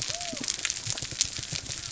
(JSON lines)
{"label": "biophony", "recorder": "SoundTrap 300"}